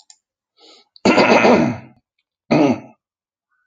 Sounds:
Throat clearing